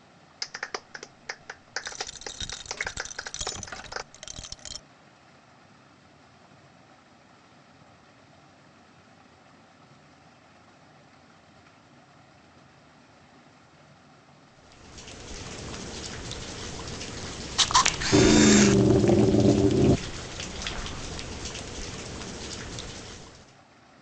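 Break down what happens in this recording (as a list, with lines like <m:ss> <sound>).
0:00 someone claps
0:02 a coin drops
0:14 rain fades in and is audible, then fades out by 0:24
0:18 the sound of a camera
0:18 an engine is heard
a faint, unchanging noise remains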